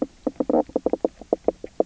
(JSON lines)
{"label": "biophony, knock croak", "recorder": "SoundTrap 300"}